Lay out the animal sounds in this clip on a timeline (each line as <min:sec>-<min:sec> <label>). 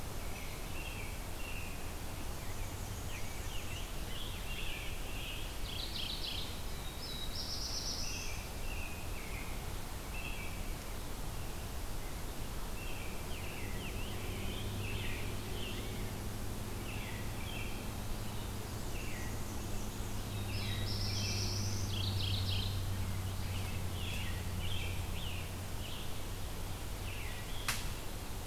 0:00.0-0:02.0 American Robin (Turdus migratorius)
0:02.0-0:04.0 Black-and-white Warbler (Mniotilta varia)
0:02.9-0:05.5 Scarlet Tanager (Piranga olivacea)
0:03.9-0:05.5 American Robin (Turdus migratorius)
0:05.3-0:06.9 Mourning Warbler (Geothlypis philadelphia)
0:06.6-0:08.7 Black-throated Blue Warbler (Setophaga caerulescens)
0:07.6-0:09.7 American Robin (Turdus migratorius)
0:10.0-0:10.7 American Robin (Turdus migratorius)
0:12.7-0:15.5 American Robin (Turdus migratorius)
0:13.0-0:16.3 Scarlet Tanager (Piranga olivacea)
0:16.7-0:18.0 American Robin (Turdus migratorius)
0:18.6-0:20.4 Black-and-white Warbler (Mniotilta varia)
0:18.8-0:19.5 American Robin (Turdus migratorius)
0:20.1-0:22.4 Black-throated Blue Warbler (Setophaga caerulescens)
0:20.3-0:21.7 American Robin (Turdus migratorius)
0:21.6-0:23.1 Mourning Warbler (Geothlypis philadelphia)
0:22.9-0:26.1 Scarlet Tanager (Piranga olivacea)
0:22.9-0:24.5 American Robin (Turdus migratorius)
0:26.9-0:27.9 American Robin (Turdus migratorius)